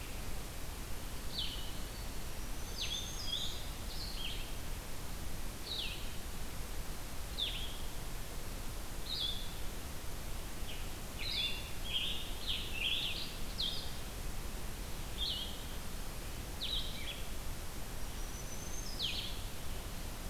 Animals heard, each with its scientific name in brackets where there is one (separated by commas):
Black-throated Green Warbler (Setophaga virens), Blue-headed Vireo (Vireo solitarius), Scarlet Tanager (Piranga olivacea)